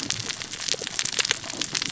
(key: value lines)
label: biophony, cascading saw
recorder: SoundTrap 600 or HydroMoth